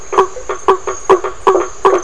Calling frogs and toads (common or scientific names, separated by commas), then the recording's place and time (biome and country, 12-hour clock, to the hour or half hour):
blacksmith tree frog
Atlantic Forest, Brazil, ~7pm